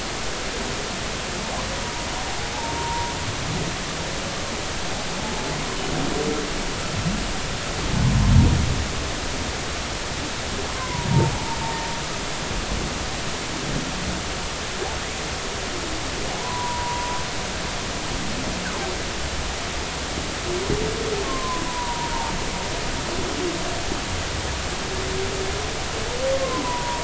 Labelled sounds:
2.8	3.1	humpback whale, 0.90 to 0.99 kHz
10.7	11.6	humpback whale, 0.80 to 1.2 kHz
16.3	17.2	humpback whale, 0.80 to 1.1 kHz
21.2	22.3	humpback whale, 0.80 to 1.1 kHz
26.3	27.0	humpback whale, 0.90 to 1.1 kHz

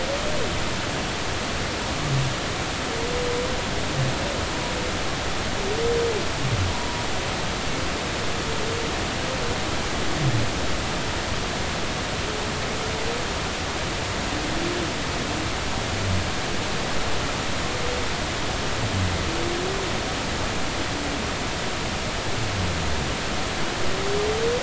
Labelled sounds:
6.7	7.0	humpback whale, 0.90 to 0.99 kHz

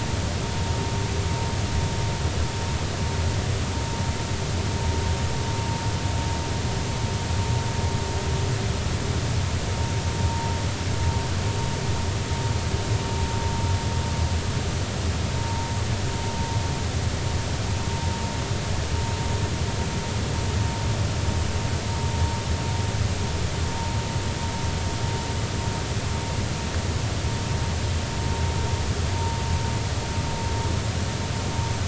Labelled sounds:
15.4	15.7	vessel noise, 0.90 to 0.96 kHz

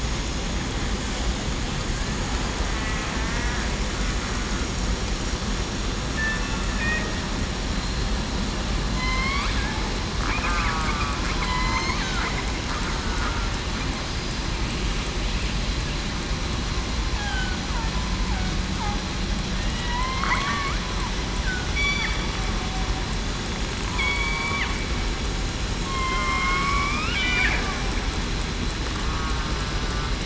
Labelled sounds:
3.1	3.5	killer whale, southern resident, 1.7 to 1.9 kHz
6.8	7.1	killer whale, southern resident, 1.8 to 1.9 kHz
8.9	9.4	killer whale, southern resident, 4.0 to 4.6 kHz
10.4	12.0	killer whale, southern resident, 0.98 to 4.5 kHz
13.0	13.4	killer whale, southern resident, 1.4 to 1.5 kHz
17.1	17.6	killer whale, southern resident, 1.5 to 1.7 kHz
19.5	20.4	killer whale, southern resident, 1.8 to 2.2 kHz
21.7	22.1	killer whale, southern resident, 3.4 to 3.5 kHz
24.0	24.5	killer whale, southern resident, 2.2 to 4.6 kHz
25.8	27.2	killer whale, southern resident, 1.0 to 3.3 kHz

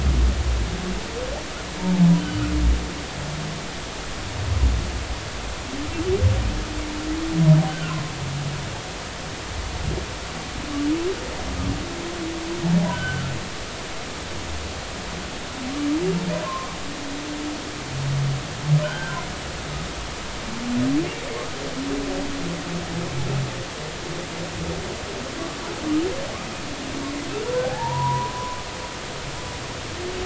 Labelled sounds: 7.7	8.0	humpback whale, 1.2 to 1.6 kHz
12.8	13.2	humpback whale, 1.4 to 1.6 kHz
16.4	16.8	humpback whale, 0.99 to 1.2 kHz
18.8	19.2	humpback whale, 1.4 to 1.6 kHz
27.6	28.3	humpback whale, 0.80 to 1.1 kHz

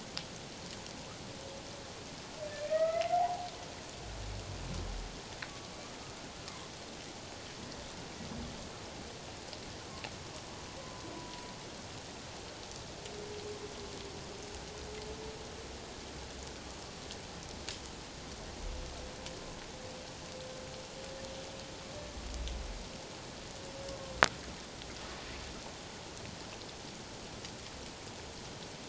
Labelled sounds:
2.7	3.5	humpback whale, 0.78 to 2.1 kHz
11.1	11.5	humpback whale, 0.91 to 1.0 kHz

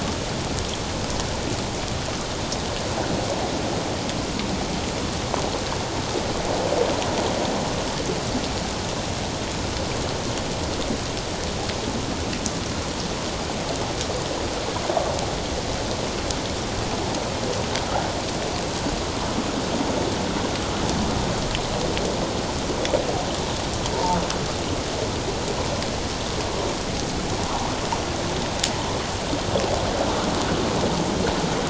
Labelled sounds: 23.9	24.2	humpback whale, 0.84 to 1.0 kHz

